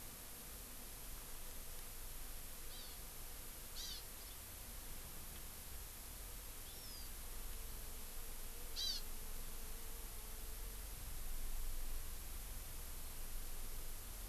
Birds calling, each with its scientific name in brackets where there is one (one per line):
Hawaii Amakihi (Chlorodrepanis virens)